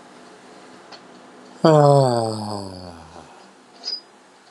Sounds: Sigh